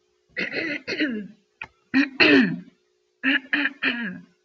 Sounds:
Throat clearing